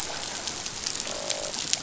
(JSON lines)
{"label": "biophony, croak", "recorder": "SoundTrap 500"}